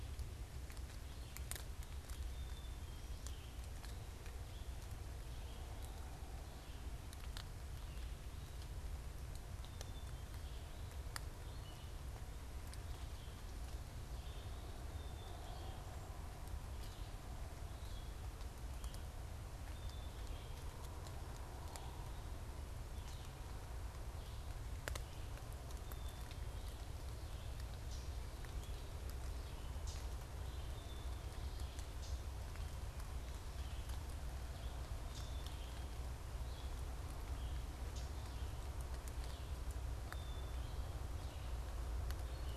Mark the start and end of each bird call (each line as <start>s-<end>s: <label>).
0.0s-42.6s: Red-eyed Vireo (Vireo olivaceus)
2.2s-3.2s: Black-capped Chickadee (Poecile atricapillus)
9.6s-10.4s: Black-capped Chickadee (Poecile atricapillus)
14.8s-15.9s: Black-capped Chickadee (Poecile atricapillus)
19.7s-20.7s: Black-capped Chickadee (Poecile atricapillus)
25.7s-26.9s: Black-capped Chickadee (Poecile atricapillus)
27.6s-35.5s: unidentified bird
30.7s-31.8s: Black-capped Chickadee (Poecile atricapillus)
37.7s-38.2s: unidentified bird
40.0s-41.2s: Black-capped Chickadee (Poecile atricapillus)